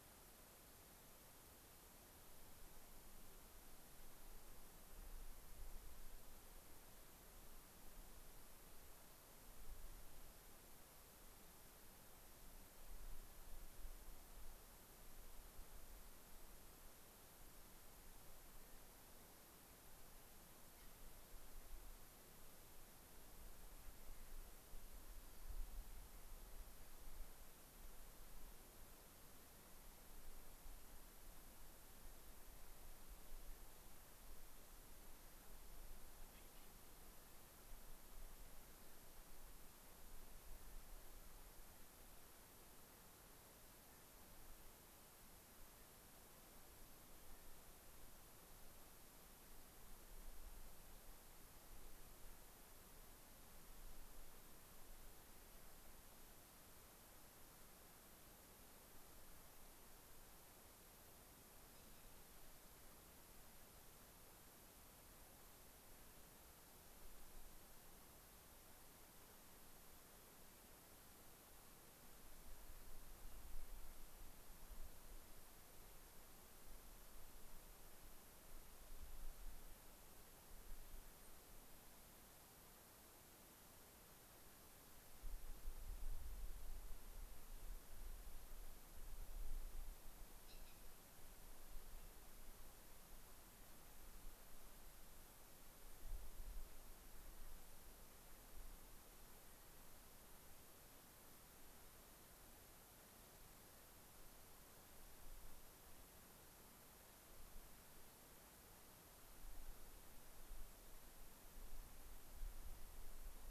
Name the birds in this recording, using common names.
unidentified bird, Hermit Thrush